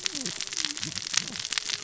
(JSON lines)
{"label": "biophony, cascading saw", "recorder": "SoundTrap 600 or HydroMoth"}